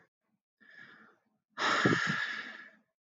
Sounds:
Sigh